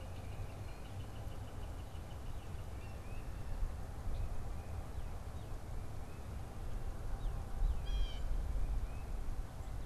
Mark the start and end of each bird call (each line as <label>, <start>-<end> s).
Northern Flicker (Colaptes auratus), 0.0-2.9 s
Blue Jay (Cyanocitta cristata), 2.7-3.4 s
Northern Cardinal (Cardinalis cardinalis), 5.0-8.2 s
Blue Jay (Cyanocitta cristata), 7.7-8.4 s
Tufted Titmouse (Baeolophus bicolor), 8.5-9.3 s